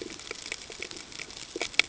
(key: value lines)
label: ambient
recorder: HydroMoth